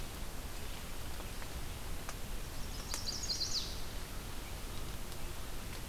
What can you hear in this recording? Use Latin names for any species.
Setophaga pensylvanica